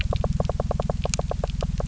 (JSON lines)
{"label": "biophony, knock", "recorder": "SoundTrap 300"}
{"label": "anthrophony, boat engine", "recorder": "SoundTrap 300"}